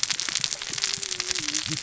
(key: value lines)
label: biophony, cascading saw
recorder: SoundTrap 600 or HydroMoth